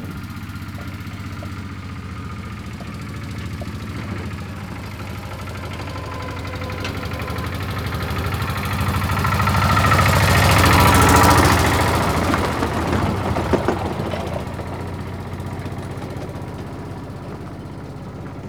Is the sound mechanical?
yes